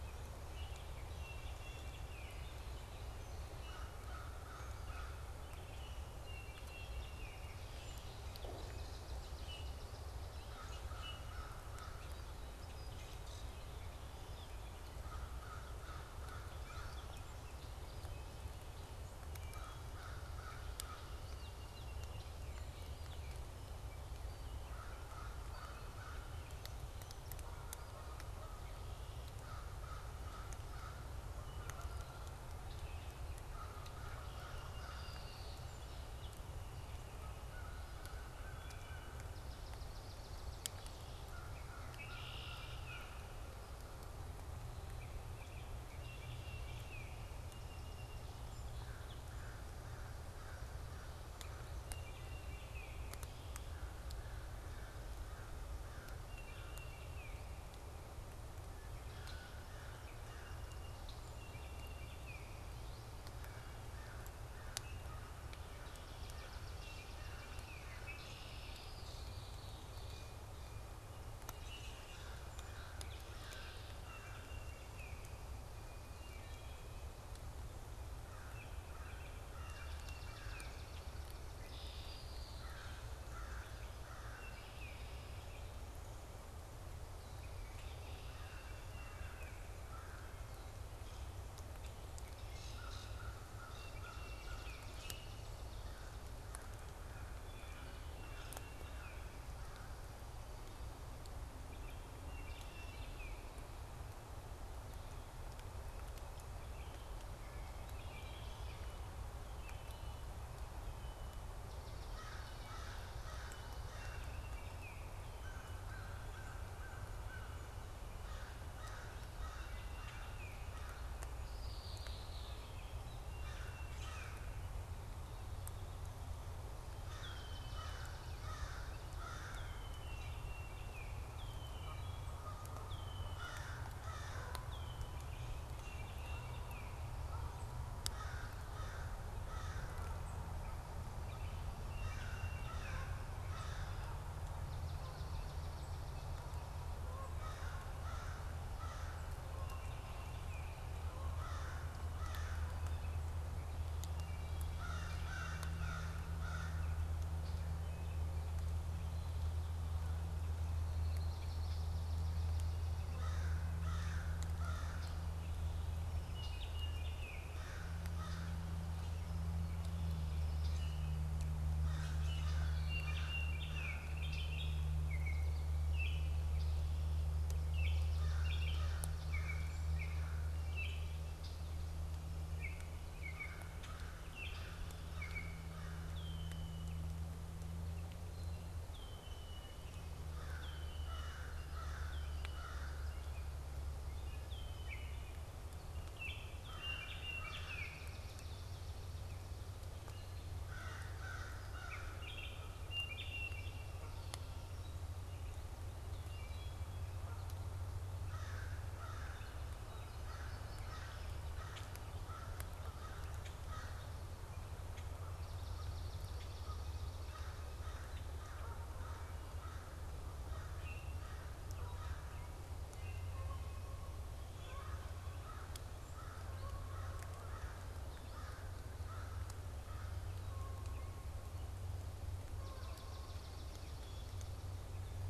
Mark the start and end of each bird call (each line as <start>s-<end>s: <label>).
0.3s-2.7s: Baltimore Oriole (Icterus galbula)
3.5s-5.4s: American Crow (Corvus brachyrhynchos)
6.1s-7.6s: Baltimore Oriole (Icterus galbula)
7.5s-8.4s: Red-winged Blackbird (Agelaius phoeniceus)
8.3s-10.5s: Swamp Sparrow (Melospiza georgiana)
10.2s-12.3s: American Crow (Corvus brachyrhynchos)
10.5s-11.4s: Common Grackle (Quiscalus quiscula)
13.0s-13.7s: Common Grackle (Quiscalus quiscula)
13.8s-15.7s: Gray Catbird (Dumetella carolinensis)
14.9s-17.2s: American Crow (Corvus brachyrhynchos)
16.3s-18.9s: Gray Catbird (Dumetella carolinensis)
19.2s-19.8s: Wood Thrush (Hylocichla mustelina)
19.4s-21.4s: American Crow (Corvus brachyrhynchos)
24.5s-26.4s: American Crow (Corvus brachyrhynchos)
27.3s-28.8s: Canada Goose (Branta canadensis)
29.2s-31.2s: American Crow (Corvus brachyrhynchos)
31.4s-32.5s: Canada Goose (Branta canadensis)
33.4s-35.5s: American Crow (Corvus brachyrhynchos)
34.4s-35.8s: Red-winged Blackbird (Agelaius phoeniceus)
35.1s-37.1s: Song Sparrow (Melospiza melodia)
37.4s-39.5s: American Crow (Corvus brachyrhynchos)
38.6s-39.2s: Wood Thrush (Hylocichla mustelina)
39.5s-41.3s: Swamp Sparrow (Melospiza georgiana)
41.2s-43.4s: American Crow (Corvus brachyrhynchos)
41.8s-43.0s: Red-winged Blackbird (Agelaius phoeniceus)
42.7s-43.1s: Baltimore Oriole (Icterus galbula)
44.7s-47.3s: Baltimore Oriole (Icterus galbula)
47.0s-49.2s: Song Sparrow (Melospiza melodia)
48.6s-52.1s: American Crow (Corvus brachyrhynchos)
51.8s-53.4s: Baltimore Oriole (Icterus galbula)
53.6s-57.0s: American Crow (Corvus brachyrhynchos)
56.2s-57.8s: Baltimore Oriole (Icterus galbula)
58.9s-60.8s: American Crow (Corvus brachyrhynchos)
60.0s-61.9s: Song Sparrow (Melospiza melodia)
61.4s-62.8s: Baltimore Oriole (Icterus galbula)
63.3s-68.2s: American Crow (Corvus brachyrhynchos)
65.7s-68.3s: Swamp Sparrow (Melospiza georgiana)
66.7s-68.4s: Baltimore Oriole (Icterus galbula)
67.9s-70.4s: Red-winged Blackbird (Agelaius phoeniceus)
71.4s-72.7s: Common Grackle (Quiscalus quiscula)
71.8s-74.8s: American Crow (Corvus brachyrhynchos)
72.1s-74.1s: Song Sparrow (Melospiza melodia)
73.9s-75.4s: Baltimore Oriole (Icterus galbula)
76.0s-77.1s: Wood Thrush (Hylocichla mustelina)
78.1s-80.9s: American Crow (Corvus brachyrhynchos)
78.3s-81.0s: Baltimore Oriole (Icterus galbula)
79.4s-81.6s: Swamp Sparrow (Melospiza georgiana)
81.5s-82.8s: Red-winged Blackbird (Agelaius phoeniceus)
82.4s-84.7s: American Crow (Corvus brachyrhynchos)
84.2s-85.4s: Baltimore Oriole (Icterus galbula)
88.1s-90.6s: American Crow (Corvus brachyrhynchos)
88.6s-89.6s: Baltimore Oriole (Icterus galbula)
92.4s-95.5s: Common Grackle (Quiscalus quiscula)
92.6s-94.8s: American Crow (Corvus brachyrhynchos)
93.6s-95.0s: Baltimore Oriole (Icterus galbula)
95.8s-100.3s: American Crow (Corvus brachyrhynchos)
97.3s-98.1s: Wood Thrush (Hylocichla mustelina)
98.2s-99.5s: Baltimore Oriole (Icterus galbula)
101.6s-103.5s: Baltimore Oriole (Icterus galbula)
106.5s-107.1s: Baltimore Oriole (Icterus galbula)
107.9s-108.9s: Wood Thrush (Hylocichla mustelina)
109.5s-110.0s: Baltimore Oriole (Icterus galbula)
109.7s-111.5s: Red-winged Blackbird (Agelaius phoeniceus)
111.8s-113.8s: Swamp Sparrow (Melospiza georgiana)
111.9s-121.5s: American Crow (Corvus brachyrhynchos)
113.9s-115.2s: Baltimore Oriole (Icterus galbula)
119.4s-120.9s: Baltimore Oriole (Icterus galbula)
119.5s-120.2s: Wood Thrush (Hylocichla mustelina)
121.3s-122.8s: Red-winged Blackbird (Agelaius phoeniceus)
123.1s-124.5s: Baltimore Oriole (Icterus galbula)
123.2s-124.5s: American Crow (Corvus brachyrhynchos)
123.9s-124.4s: Common Grackle (Quiscalus quiscula)
127.0s-140.0s: American Crow (Corvus brachyrhynchos)
127.1s-128.1s: Red-winged Blackbird (Agelaius phoeniceus)
127.3s-129.5s: Swamp Sparrow (Melospiza georgiana)
129.4s-130.3s: Red-winged Blackbird (Agelaius phoeniceus)
130.0s-131.2s: Baltimore Oriole (Icterus galbula)
131.3s-133.7s: Red-winged Blackbird (Agelaius phoeniceus)
131.6s-132.5s: Wood Thrush (Hylocichla mustelina)
131.9s-137.9s: Canada Goose (Branta canadensis)
134.4s-135.3s: Red-winged Blackbird (Agelaius phoeniceus)
135.7s-137.1s: Baltimore Oriole (Icterus galbula)
140.2s-140.3s: unidentified bird
141.7s-143.1s: Baltimore Oriole (Icterus galbula)
141.7s-144.2s: American Crow (Corvus brachyrhynchos)
144.5s-146.7s: Swamp Sparrow (Melospiza georgiana)
147.3s-150.0s: American Crow (Corvus brachyrhynchos)
149.6s-150.9s: Baltimore Oriole (Icterus galbula)
151.2s-152.7s: American Crow (Corvus brachyrhynchos)
154.0s-154.6s: Wood Thrush (Hylocichla mustelina)
154.6s-157.0s: American Crow (Corvus brachyrhynchos)
154.8s-156.1s: Baltimore Oriole (Icterus galbula)
157.7s-158.3s: Wood Thrush (Hylocichla mustelina)
160.7s-162.0s: Red-winged Blackbird (Agelaius phoeniceus)
161.5s-163.5s: Swamp Sparrow (Melospiza georgiana)
163.1s-165.1s: American Crow (Corvus brachyrhynchos)
164.9s-165.1s: Red-winged Blackbird (Agelaius phoeniceus)
166.3s-167.8s: Baltimore Oriole (Icterus galbula)
166.4s-166.5s: Red-winged Blackbird (Agelaius phoeniceus)
167.5s-168.7s: American Crow (Corvus brachyrhynchos)
168.3s-168.4s: Red-winged Blackbird (Agelaius phoeniceus)
170.5s-171.3s: Common Grackle (Quiscalus quiscula)
171.7s-174.2s: American Crow (Corvus brachyrhynchos)
171.8s-172.8s: Common Grackle (Quiscalus quiscula)
172.6s-173.4s: Red-winged Blackbird (Agelaius phoeniceus)
172.6s-176.4s: Baltimore Oriole (Icterus galbula)
174.2s-174.5s: Red-winged Blackbird (Agelaius phoeniceus)
176.5s-177.3s: Red-winged Blackbird (Agelaius phoeniceus)
177.6s-181.3s: Baltimore Oriole (Icterus galbula)
178.0s-180.5s: American Crow (Corvus brachyrhynchos)
181.4s-181.6s: Red-winged Blackbird (Agelaius phoeniceus)
182.5s-185.6s: Baltimore Oriole (Icterus galbula)
183.2s-186.2s: American Crow (Corvus brachyrhynchos)
183.7s-184.0s: Common Grackle (Quiscalus quiscula)
186.0s-187.1s: Red-winged Blackbird (Agelaius phoeniceus)
188.7s-190.2s: Red-winged Blackbird (Agelaius phoeniceus)
190.1s-193.3s: American Crow (Corvus brachyrhynchos)
190.5s-192.7s: Red-winged Blackbird (Agelaius phoeniceus)
194.3s-195.3s: Red-winged Blackbird (Agelaius phoeniceus)
195.9s-198.3s: Baltimore Oriole (Icterus galbula)
196.5s-197.3s: Red-winged Blackbird (Agelaius phoeniceus)
196.5s-198.1s: American Crow (Corvus brachyrhynchos)
197.4s-199.8s: Swamp Sparrow (Melospiza georgiana)
200.5s-202.5s: American Crow (Corvus brachyrhynchos)
201.8s-204.2s: Baltimore Oriole (Icterus galbula)
206.2s-207.0s: Wood Thrush (Hylocichla mustelina)
208.1s-214.3s: American Crow (Corvus brachyrhynchos)
208.5s-211.8s: American Goldfinch (Spinus tristis)
211.6s-212.0s: Common Grackle (Quiscalus quiscula)
213.4s-213.6s: Common Grackle (Quiscalus quiscula)
215.1s-227.3s: Canada Goose (Branta canadensis)
215.2s-217.7s: Swamp Sparrow (Melospiza georgiana)
220.7s-221.3s: Common Grackle (Quiscalus quiscula)
221.6s-223.5s: American Robin (Turdus migratorius)
224.4s-230.4s: American Crow (Corvus brachyrhynchos)
230.5s-233.4s: Canada Goose (Branta canadensis)
232.4s-234.9s: Swamp Sparrow (Melospiza georgiana)